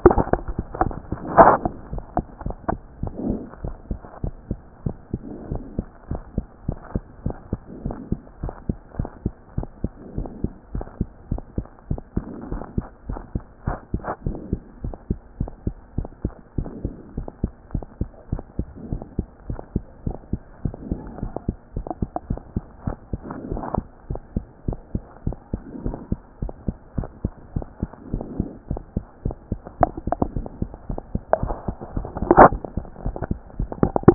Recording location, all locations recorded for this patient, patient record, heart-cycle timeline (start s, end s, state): mitral valve (MV)
aortic valve (AV)+pulmonary valve (PV)+tricuspid valve (TV)+mitral valve (MV)
#Age: Child
#Sex: Female
#Height: 114.0 cm
#Weight: 19.9 kg
#Pregnancy status: False
#Murmur: Absent
#Murmur locations: nan
#Most audible location: nan
#Systolic murmur timing: nan
#Systolic murmur shape: nan
#Systolic murmur grading: nan
#Systolic murmur pitch: nan
#Systolic murmur quality: nan
#Diastolic murmur timing: nan
#Diastolic murmur shape: nan
#Diastolic murmur grading: nan
#Diastolic murmur pitch: nan
#Diastolic murmur quality: nan
#Outcome: Abnormal
#Campaign: 2014 screening campaign
0.00	1.92	unannotated
1.92	2.04	S1
2.04	2.16	systole
2.16	2.26	S2
2.26	2.44	diastole
2.44	2.56	S1
2.56	2.70	systole
2.70	2.80	S2
2.80	3.02	diastole
3.02	3.12	S1
3.12	3.24	systole
3.24	3.40	S2
3.40	3.64	diastole
3.64	3.74	S1
3.74	3.90	systole
3.90	4.00	S2
4.00	4.22	diastole
4.22	4.34	S1
4.34	4.48	systole
4.48	4.58	S2
4.58	4.84	diastole
4.84	4.96	S1
4.96	5.12	systole
5.12	5.20	S2
5.20	5.50	diastole
5.50	5.62	S1
5.62	5.76	systole
5.76	5.86	S2
5.86	6.10	diastole
6.10	6.22	S1
6.22	6.36	systole
6.36	6.46	S2
6.46	6.66	diastole
6.66	6.78	S1
6.78	6.94	systole
6.94	7.02	S2
7.02	7.24	diastole
7.24	7.36	S1
7.36	7.50	systole
7.50	7.60	S2
7.60	7.84	diastole
7.84	7.96	S1
7.96	8.10	systole
8.10	8.20	S2
8.20	8.42	diastole
8.42	8.54	S1
8.54	8.68	systole
8.68	8.78	S2
8.78	8.98	diastole
8.98	9.10	S1
9.10	9.24	systole
9.24	9.34	S2
9.34	9.56	diastole
9.56	9.68	S1
9.68	9.82	systole
9.82	9.92	S2
9.92	10.16	diastole
10.16	10.28	S1
10.28	10.42	systole
10.42	10.52	S2
10.52	10.74	diastole
10.74	10.86	S1
10.86	10.98	systole
10.98	11.08	S2
11.08	11.30	diastole
11.30	11.42	S1
11.42	11.56	systole
11.56	11.66	S2
11.66	11.90	diastole
11.90	12.00	S1
12.00	12.16	systole
12.16	12.24	S2
12.24	12.50	diastole
12.50	12.62	S1
12.62	12.76	systole
12.76	12.86	S2
12.86	13.08	diastole
13.08	13.20	S1
13.20	13.34	systole
13.34	13.42	S2
13.42	13.66	diastole
13.66	13.78	S1
13.78	13.92	systole
13.92	14.02	S2
14.02	14.26	diastole
14.26	14.38	S1
14.38	14.50	systole
14.50	14.60	S2
14.60	14.84	diastole
14.84	14.96	S1
14.96	15.08	systole
15.08	15.18	S2
15.18	15.40	diastole
15.40	15.50	S1
15.50	15.66	systole
15.66	15.74	S2
15.74	15.96	diastole
15.96	16.08	S1
16.08	16.24	systole
16.24	16.32	S2
16.32	16.58	diastole
16.58	16.70	S1
16.70	16.84	systole
16.84	16.94	S2
16.94	17.16	diastole
17.16	17.28	S1
17.28	17.42	systole
17.42	17.52	S2
17.52	17.74	diastole
17.74	17.84	S1
17.84	18.00	systole
18.00	18.10	S2
18.10	18.30	diastole
18.30	18.42	S1
18.42	18.58	systole
18.58	18.66	S2
18.66	18.90	diastole
18.90	19.02	S1
19.02	19.18	systole
19.18	19.26	S2
19.26	19.48	diastole
19.48	19.60	S1
19.60	19.74	systole
19.74	19.84	S2
19.84	20.06	diastole
20.06	20.16	S1
20.16	20.32	systole
20.32	20.40	S2
20.40	20.64	diastole
20.64	20.76	S1
20.76	20.90	systole
20.90	21.00	S2
21.00	21.22	diastole
21.22	21.32	S1
21.32	21.46	systole
21.46	21.56	S2
21.56	21.76	diastole
21.76	21.86	S1
21.86	22.00	systole
22.00	22.10	S2
22.10	22.28	diastole
22.28	22.40	S1
22.40	22.54	systole
22.54	22.64	S2
22.64	22.86	diastole
22.86	22.96	S1
22.96	23.12	systole
23.12	23.20	S2
23.20	23.50	diastole
23.50	23.62	S1
23.62	23.76	systole
23.76	23.86	S2
23.86	24.10	diastole
24.10	24.20	S1
24.20	24.34	systole
24.34	24.44	S2
24.44	24.66	diastole
24.66	24.78	S1
24.78	24.94	systole
24.94	25.02	S2
25.02	25.26	diastole
25.26	25.36	S1
25.36	25.52	systole
25.52	25.62	S2
25.62	25.84	diastole
25.84	25.96	S1
25.96	26.10	systole
26.10	26.20	S2
26.20	26.42	diastole
26.42	26.52	S1
26.52	26.66	systole
26.66	26.76	S2
26.76	26.96	diastole
26.96	27.08	S1
27.08	27.22	systole
27.22	27.32	S2
27.32	27.54	diastole
27.54	27.66	S1
27.66	27.80	systole
27.80	27.90	S2
27.90	28.12	diastole
28.12	28.24	S1
28.24	28.38	systole
28.38	28.48	S2
28.48	28.70	diastole
28.70	28.82	S1
28.82	28.96	systole
28.96	29.04	S2
29.04	29.24	diastole
29.24	29.36	S1
29.36	29.50	systole
29.50	29.60	S2
29.60	29.80	diastole
29.80	34.14	unannotated